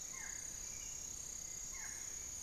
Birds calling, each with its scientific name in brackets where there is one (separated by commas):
Barred Forest-Falcon (Micrastur ruficollis), Piratic Flycatcher (Legatus leucophaius)